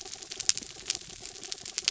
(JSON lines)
{"label": "anthrophony, mechanical", "recorder": "SoundTrap 300"}